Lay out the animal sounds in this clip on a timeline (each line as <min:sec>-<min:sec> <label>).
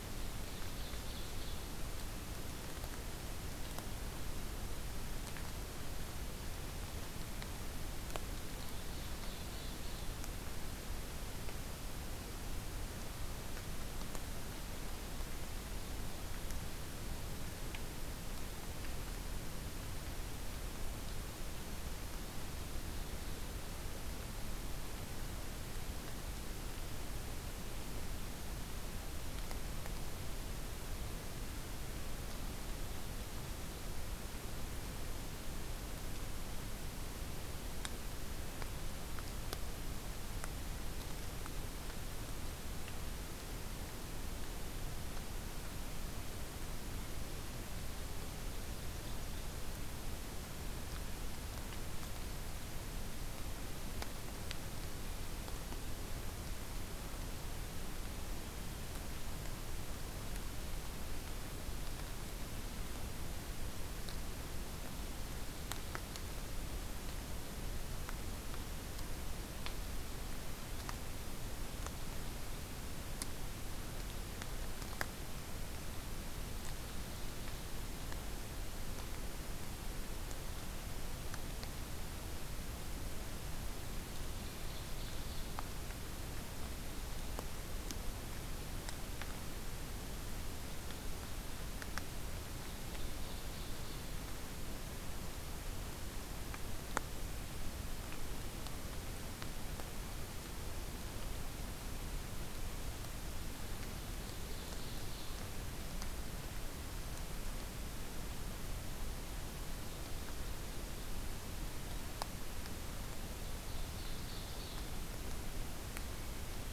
0:00.0-0:01.7 Ovenbird (Seiurus aurocapilla)
0:08.4-0:10.2 Ovenbird (Seiurus aurocapilla)
1:23.9-1:25.6 Ovenbird (Seiurus aurocapilla)
1:32.5-1:34.2 Ovenbird (Seiurus aurocapilla)
1:43.9-1:45.4 Ovenbird (Seiurus aurocapilla)
1:53.3-1:54.9 Ovenbird (Seiurus aurocapilla)